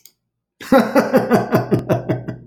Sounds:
Laughter